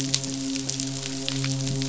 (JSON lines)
{"label": "biophony, midshipman", "recorder": "SoundTrap 500"}